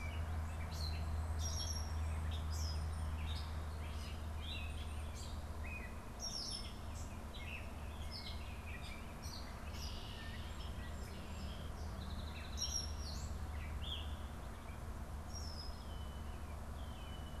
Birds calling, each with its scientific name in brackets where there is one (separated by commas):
Gray Catbird (Dumetella carolinensis), Red-winged Blackbird (Agelaius phoeniceus), Song Sparrow (Melospiza melodia)